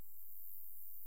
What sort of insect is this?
orthopteran